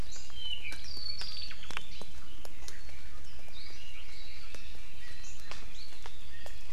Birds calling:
Apapane (Himatione sanguinea)

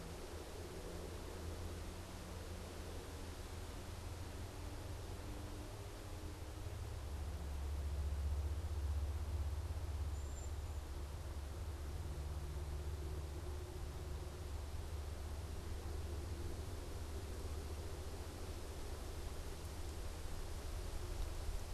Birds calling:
Cedar Waxwing (Bombycilla cedrorum)

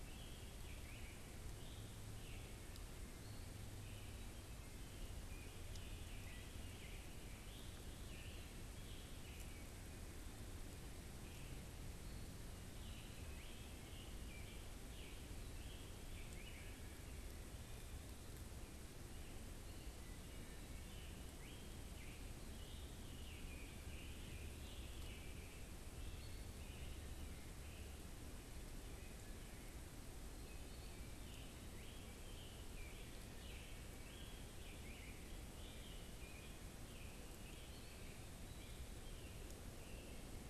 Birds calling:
Wood Thrush (Hylocichla mustelina)
Eastern Wood-Pewee (Contopus virens)
Scarlet Tanager (Piranga olivacea)

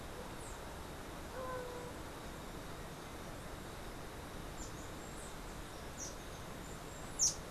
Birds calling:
unidentified bird

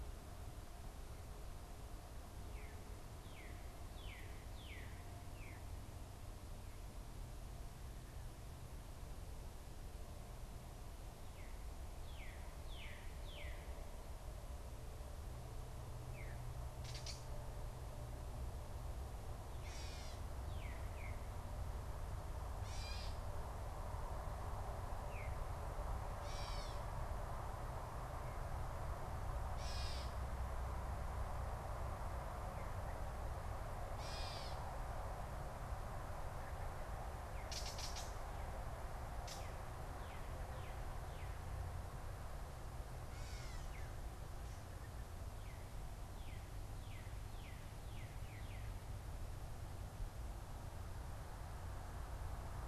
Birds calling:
Veery (Catharus fuscescens)
Gray Catbird (Dumetella carolinensis)
Northern Cardinal (Cardinalis cardinalis)

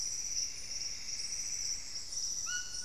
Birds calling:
White-throated Toucan (Ramphastos tucanus)
Plumbeous Antbird (Myrmelastes hyperythrus)

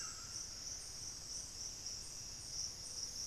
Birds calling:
Plumbeous Antbird (Myrmelastes hyperythrus)
White-throated Toucan (Ramphastos tucanus)

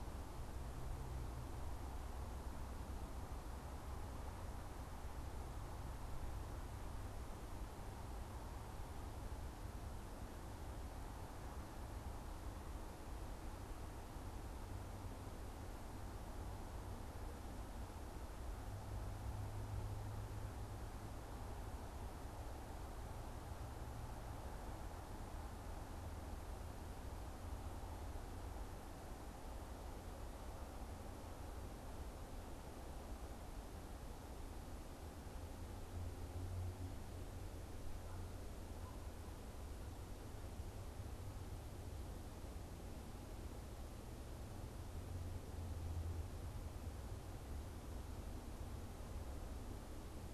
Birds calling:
Canada Goose (Branta canadensis)

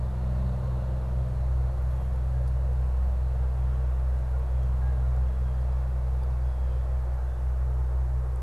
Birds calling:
Canada Goose (Branta canadensis)

